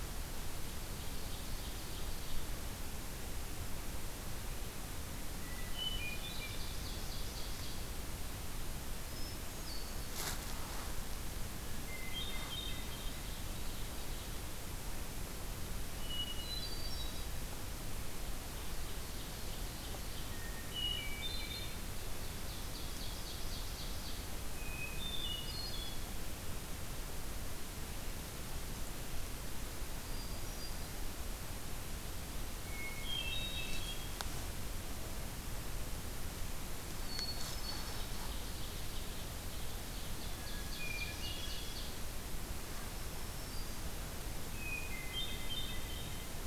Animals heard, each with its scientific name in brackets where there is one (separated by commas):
Hermit Thrush (Catharus guttatus), Black-throated Green Warbler (Setophaga virens), Ovenbird (Seiurus aurocapilla)